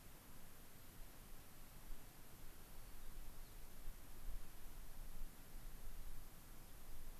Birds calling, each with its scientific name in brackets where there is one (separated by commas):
White-crowned Sparrow (Zonotrichia leucophrys)